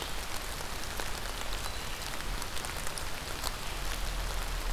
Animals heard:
forest ambience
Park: Marsh-Billings-Rockefeller National Historical Park